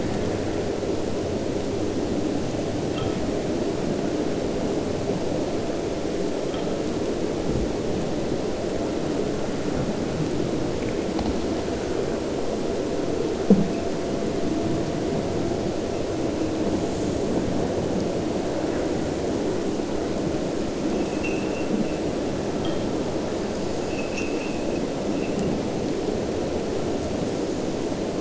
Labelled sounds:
21.1	21.7	abiotic sound, 2.2 to 2.9 kHz
23.8	24.6	abiotic sound, 2.3 to 3.3 kHz

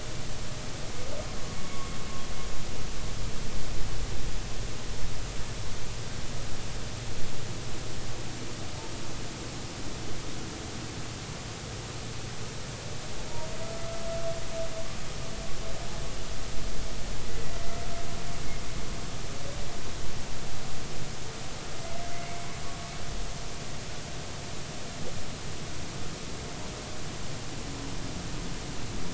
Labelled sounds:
17.3	17.5	humpback whale, 1.9 to 2.0 kHz

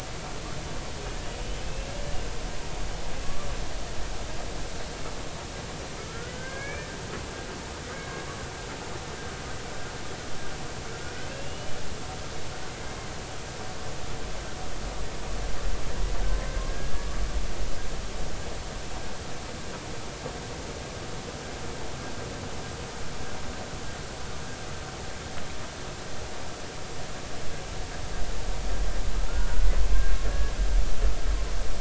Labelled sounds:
1.6	2.0	humpback whale, 2.5 to 2.8 kHz
3.2	3.5	humpback whale, 1.1 to 1.2 kHz
6.0	6.9	humpback whale, 1.2 to 2.4 kHz
11.3	11.8	humpback whale, 2.6 to 3.0 kHz
16.7	17.1	humpback whale, 1.6 to 1.7 kHz
29.3	29.7	humpback whale, 1.3 to 1.5 kHz

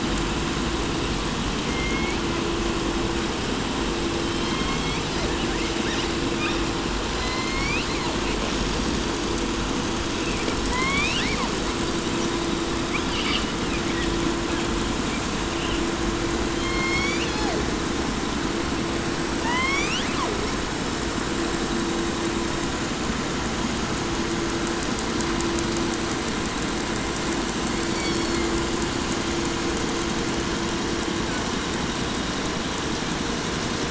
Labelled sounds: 1.2	2.4	killer whale, southern resident, J pod, call S01, 1.1 to 5.9 kHz
4.1	5.5	killer whale, southern resident, J pod, call S01, 0.69 to 5.6 kHz
5.1	6.8	killer whale, southern resident, call S10, 0.69 to 6.4 kHz
7.0	8.4	killer whale, southern resident, J pod, call S01, 0.51 to 8.0 kHz
10.6	11.7	killer whale, southern resident, 0.58 to 7.6 kHz
12.8	14.1	killer whale, 0.62 to 6.4 kHz
14.4	15.9	killer whale, 1.5 to 4.2 kHz
16.5	17.7	killer whale, southern resident, J pod, call S01, 0.30 to 8.0 kHz
19.3	20.6	killer whale, southern resident, J pod, call S01, 0.32 to 8.0 kHz
27.7	28.8	killer whale, 1.7 to 6.1 kHz

